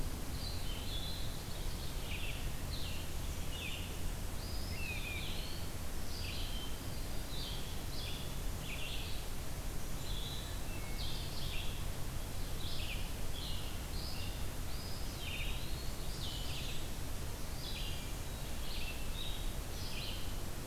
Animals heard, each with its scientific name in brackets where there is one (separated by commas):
Eastern Wood-Pewee (Contopus virens), Red-eyed Vireo (Vireo olivaceus), Hermit Thrush (Catharus guttatus), Blackburnian Warbler (Setophaga fusca)